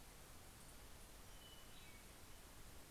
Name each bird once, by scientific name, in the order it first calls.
Catharus guttatus